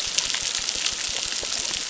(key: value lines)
label: biophony, crackle
recorder: SoundTrap 600